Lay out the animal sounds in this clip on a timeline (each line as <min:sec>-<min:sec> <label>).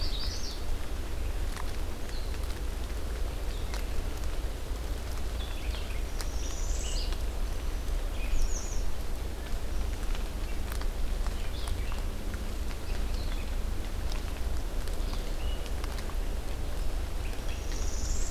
0:00.0-0:00.7 Magnolia Warbler (Setophaga magnolia)
0:00.0-0:08.6 Red-eyed Vireo (Vireo olivaceus)
0:06.0-0:07.2 Northern Parula (Setophaga americana)
0:08.1-0:09.0 American Redstart (Setophaga ruticilla)
0:11.3-0:18.3 Red-eyed Vireo (Vireo olivaceus)
0:17.4-0:18.3 Northern Parula (Setophaga americana)